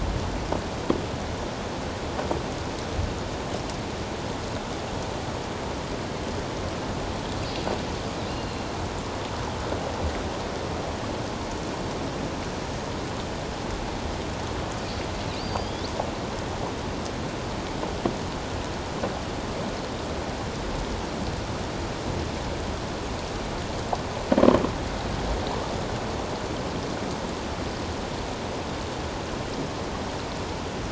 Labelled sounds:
8.3	8.6	killer whale, offshore, 2.7 to 4.3 kHz
15.4	15.9	killer whale, offshore, 3.2 to 5.0 kHz

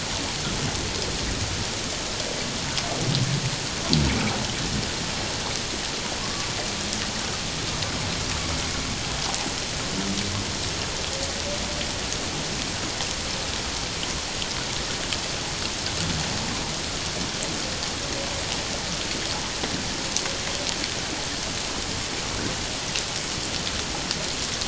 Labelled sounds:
6.2	6.5	humpback whale, 1.0 to 1.2 kHz

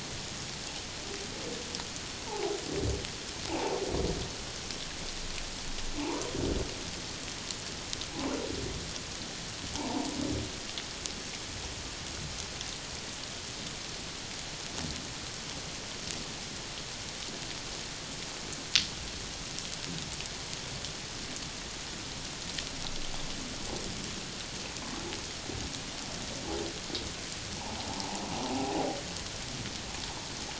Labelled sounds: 2.3	2.6	humpback whale, 0.78 to 1.0 kHz
3.5	3.8	humpback whale, 0.78 to 0.97 kHz
9.7	10.1	humpback whale, 0.78 to 1.1 kHz
27.5	28.2	humpback whale, 0.78 to 1.1 kHz
28.5	28.8	humpback whale, 0.78 to 0.88 kHz

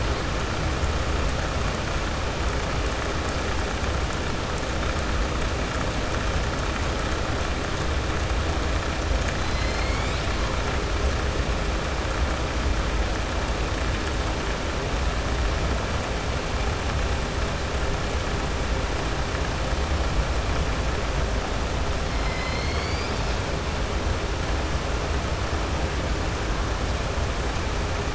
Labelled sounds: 9.4	10.3	killer whale, southern resident, 2.0 to 5.3 kHz

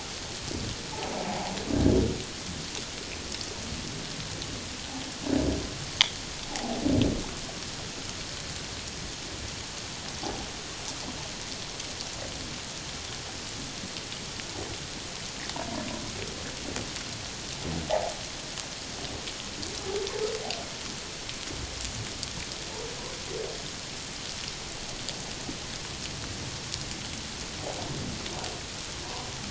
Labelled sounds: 1.3	1.5	humpback whale, 0.78 to 1.0 kHz
6.5	6.8	humpback whale, 0.78 to 0.91 kHz

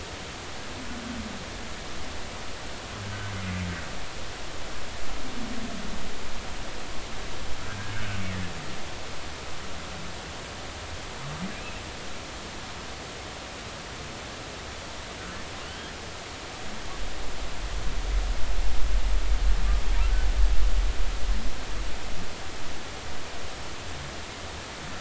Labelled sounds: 15.6	16.0	humpback whale, 1.4 to 3.3 kHz

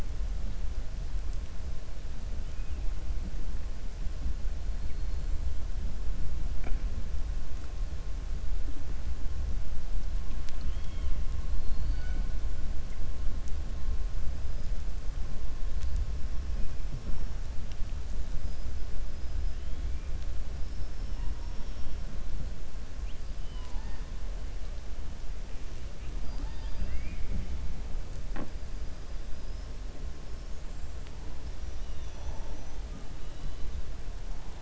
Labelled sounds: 10.3	11.2	killer whale, 1.3 to 4.5 kHz
20.6	21.2	killer whale, 4.8 to 5.5 kHz
23.3	24.0	killer whale, 0.79 to 5.0 kHz
29.3	29.7	killer whale, 4.9 to 5.5 kHz
31.9	32.8	killer whale, 5.5 to 6.8 kHz

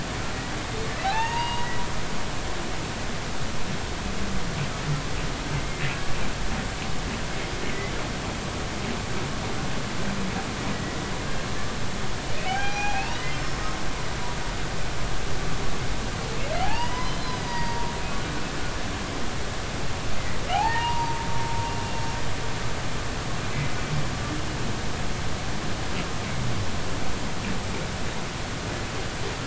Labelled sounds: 1.0	1.7	humpback whale, 0.80 to 4.8 kHz
12.4	13.3	humpback whale, 0.80 to 3.1 kHz
16.6	17.9	humpback whale, 0.80 to 5.1 kHz
20.5	21.2	humpback whale, 0.80 to 2.8 kHz

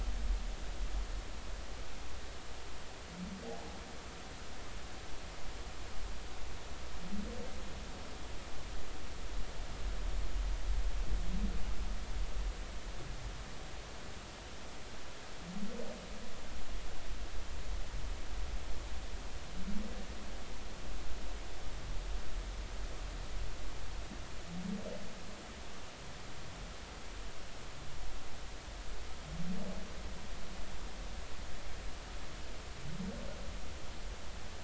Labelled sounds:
3.5	3.8	humpback whale, 0.80 to 0.93 kHz

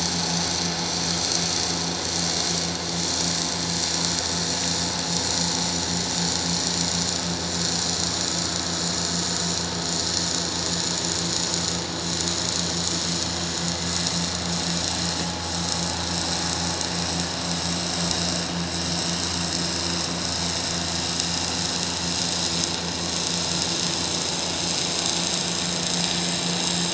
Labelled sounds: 14.9	15.2	vessel noise, 7.3 to 7.4 kHz

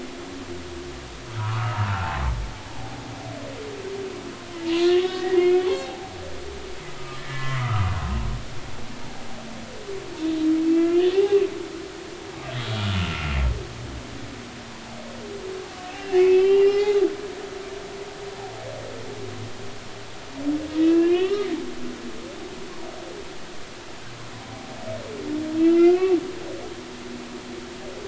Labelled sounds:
0.0	2.2	humpback whale, 0.80 to 4.9 kHz
4.8	6.1	humpback whale, 0.80 to 4.4 kHz
7.0	8.0	humpback whale, 0.93 to 2.1 kHz
10.6	11.4	humpback whale, 0.80 to 3.0 kHz
12.8	13.3	humpback whale, 1.3 to 1.5 kHz
15.9	17.0	humpback whale, 1.6 to 4.2 kHz
20.8	21.5	humpback whale, 1.1 to 3.1 kHz
25.5	26.2	humpback whale, 1.3 to 2.9 kHz

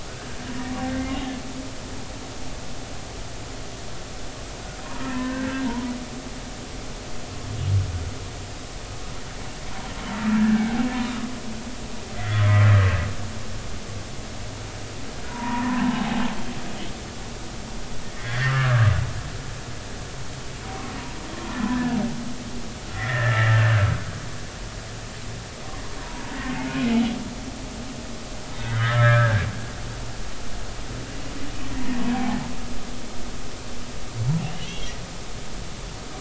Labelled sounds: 0.8	1.4	humpback whale, 1.4 to 2.9 kHz
5.0	5.9	humpback whale, 0.86 to 2.0 kHz
10.4	10.8	humpback whale, 1.4 to 1.8 kHz
12.2	12.6	humpback whale, 1.2 to 2.1 kHz
15.3	16.2	humpback whale, 0.80 to 1.9 kHz
18.2	18.9	humpback whale, 1.1 to 2.9 kHz
20.6	20.9	humpback whale, 0.93 to 1.2 kHz
21.6	22.0	humpback whale, 0.93 to 1.8 kHz
22.9	24.1	humpback whale, 1.3 to 2.1 kHz
26.0	26.9	humpback whale, 0.86 to 2.6 kHz
28.6	29.5	humpback whale, 1.2 to 2.1 kHz
32.1	32.5	humpback whale, 0.80 to 1.0 kHz
34.6	34.9	humpback whale, 2.0 to 3.4 kHz

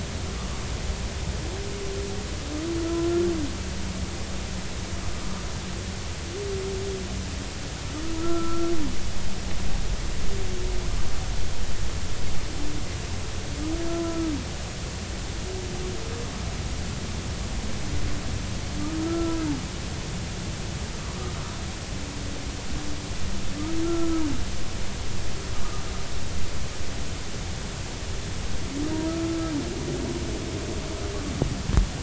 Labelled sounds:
2.9	3.3	humpback whale, 1.3 to 1.4 kHz
8.2	8.7	humpback whale, 1.3 to 1.4 kHz
14.0	14.3	humpback whale, 1.2 to 1.4 kHz
19.0	19.4	humpback whale, 1.3 to 1.4 kHz
21.0	21.3	humpback whale, 0.96 to 1.3 kHz
23.8	24.3	humpback whale, 1.2 to 1.4 kHz
29.1	29.5	humpback whale, 1.2 to 1.4 kHz

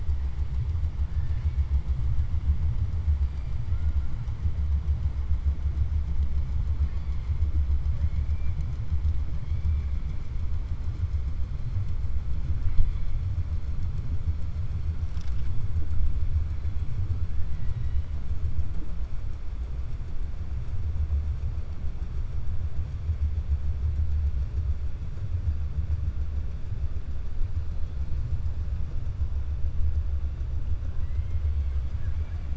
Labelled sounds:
1.1	1.6	killer whale, 1.6 to 4.5 kHz
7.9	8.6	killer whale, 1.1 to 3.0 kHz
17.4	18.1	killer whale, 1.8 to 4.8 kHz
30.9	32.5	killer whale, 0.74 to 3.4 kHz

